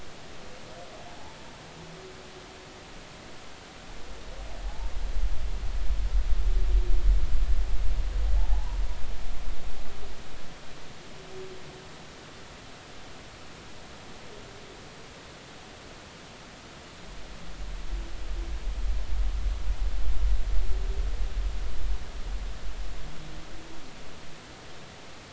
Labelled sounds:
4.6	4.9	humpback whale, 0.80 to 0.96 kHz
8.5	8.8	humpback whale, 0.80 to 1.1 kHz

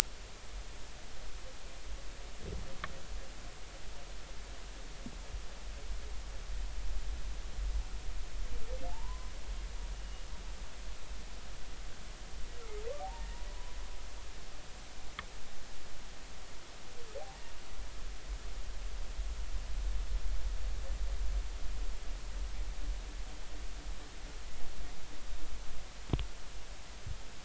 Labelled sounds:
8.9	9.3	humpback whale, 0.80 to 1.1 kHz
14.0	14.3	humpback whale, 0.80 to 0.99 kHz

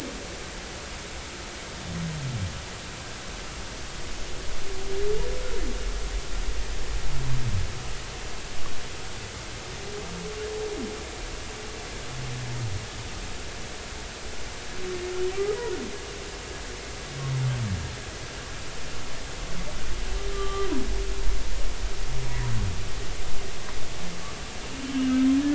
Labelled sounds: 20.3	20.7	humpback whale, 1.1 to 1.2 kHz

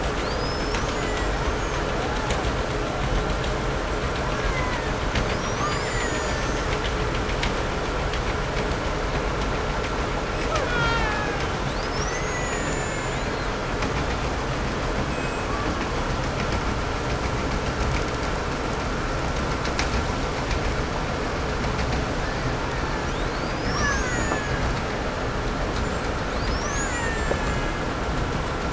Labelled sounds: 0.0	2.6	killer whale, 0.35 to 8.0 kHz
4.0	5.0	killer whale, Bigg's (transient), 0.53 to 7.7 kHz
5.2	7.3	killer whale, 0.33 to 8.0 kHz
10.1	14.1	killer whale, Bigg's (transient), 0.55 to 8.0 kHz
14.9	16.2	killer whale, Bigg's (transient), 0.74 to 8.0 kHz
22.0	23.3	killer whale, 0.48 to 2.2 kHz
23.0	25.0	killer whale, Bigg's (transient), 0.64 to 7.7 kHz
26.2	28.2	killer whale, Bigg's (transient), 0.63 to 7.8 kHz

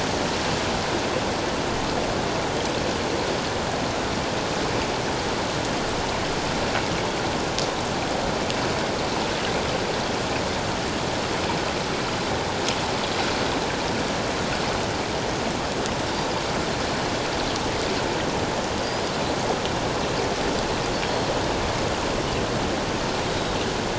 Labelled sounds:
23.3	23.6	Pacific white-sided dolphin, 3.7 to 3.9 kHz

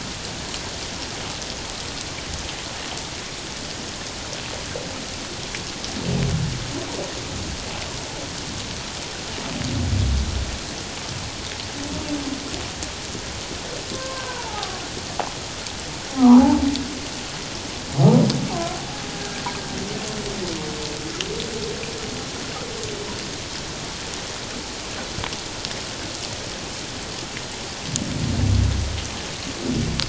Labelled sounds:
13.9	14.8	humpback whale, 0.78 to 1.3 kHz
16.1	16.6	humpback whale, 0.78 to 1.3 kHz

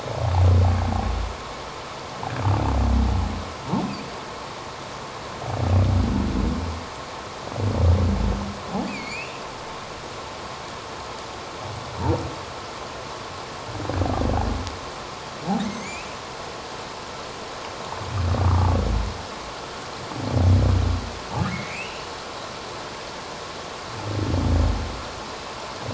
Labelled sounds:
8.9	9.4	humpback whale, 2.1 to 4.8 kHz
15.6	16.1	humpback whale, 2.0 to 6.5 kHz
21.5	22.1	humpback whale, 1.9 to 3.0 kHz

